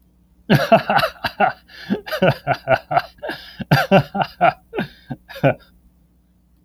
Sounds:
Laughter